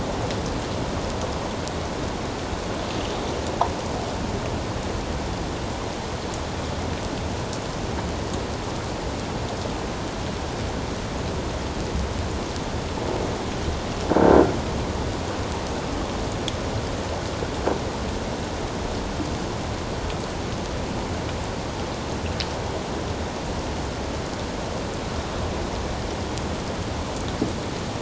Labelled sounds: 14.1	14.4	croaking sound likely from a nearby submerged object, 1.4 to 1.6 kHz

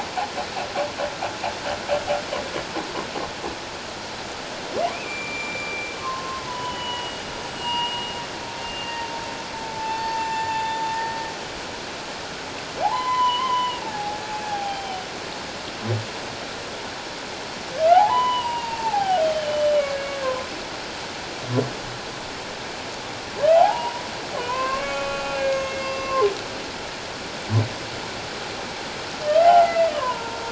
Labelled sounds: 4.9	8.1	humpback whale, 0.91 to 7.8 kHz
8.6	10.8	humpback whale, 0.78 to 7.2 kHz
12.8	14.2	humpback whale, 0.78 to 4.1 kHz
14.5	15.0	humpback whale, 0.78 to 3.2 kHz
17.9	19.7	humpback whale, 0.78 to 3.2 kHz
20.2	20.5	humpback whale, 0.97 to 1.1 kHz
23.5	26.3	humpback whale, 0.78 to 4.9 kHz
29.4	30.4	humpback whale, 0.78 to 2.1 kHz

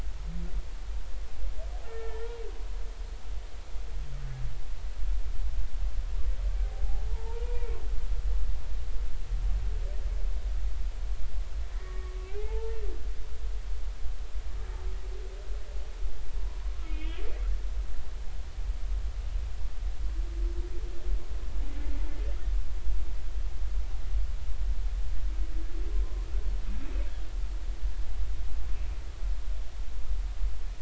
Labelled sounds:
1.8	2.3	humpback whale, 1.3 to 2.3 kHz
7.1	7.8	humpback whale, 0.80 to 2.5 kHz
11.8	12.8	humpback whale, 0.80 to 2.7 kHz
16.4	17.2	humpback whale, 0.93 to 3.4 kHz

